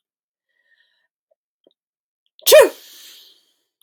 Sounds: Sneeze